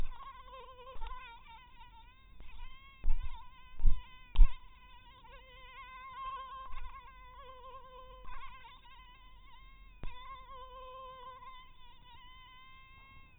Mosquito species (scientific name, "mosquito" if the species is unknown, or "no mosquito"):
mosquito